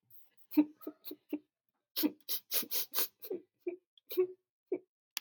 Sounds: Sigh